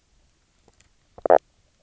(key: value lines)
label: biophony
recorder: SoundTrap 300